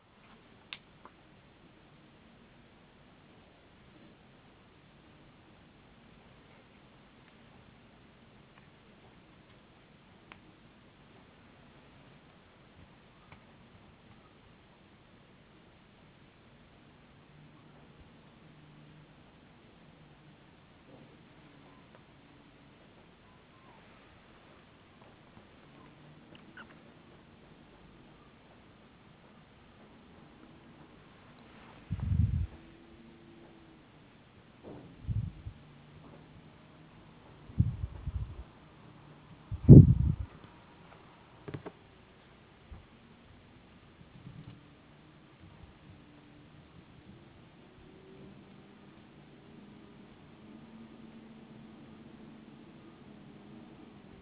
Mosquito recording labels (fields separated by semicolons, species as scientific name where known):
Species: no mosquito; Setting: insect culture